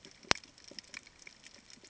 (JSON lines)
{"label": "ambient", "recorder": "HydroMoth"}